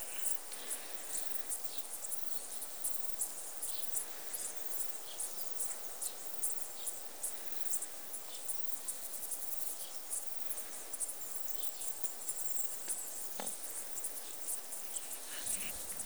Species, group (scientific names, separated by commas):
Tessellana orina, Orthoptera